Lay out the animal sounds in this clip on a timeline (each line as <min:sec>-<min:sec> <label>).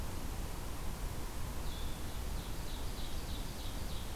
0:01.5-0:02.0 Blue-headed Vireo (Vireo solitarius)
0:02.2-0:04.2 Ovenbird (Seiurus aurocapilla)